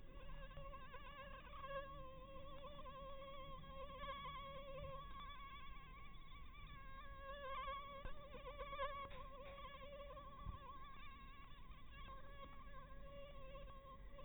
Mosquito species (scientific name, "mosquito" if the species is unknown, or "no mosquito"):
Anopheles maculatus